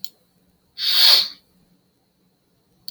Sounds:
Sniff